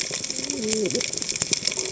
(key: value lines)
label: biophony, cascading saw
recorder: HydroMoth